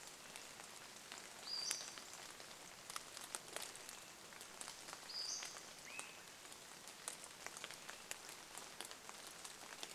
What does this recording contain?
Pacific-slope Flycatcher call, Swainson's Thrush call, rain